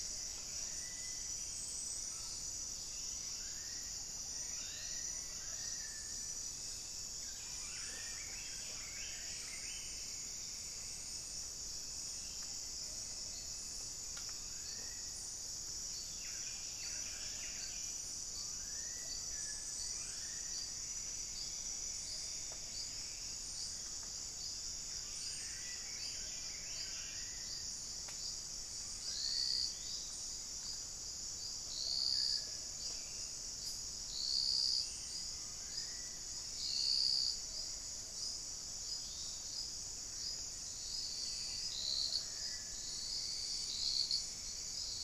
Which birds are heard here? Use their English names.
Black-faced Cotinga, unidentified bird, Buff-breasted Wren, Black-faced Antthrush, Pygmy Antwren